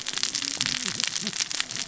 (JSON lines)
{"label": "biophony, cascading saw", "recorder": "SoundTrap 600 or HydroMoth"}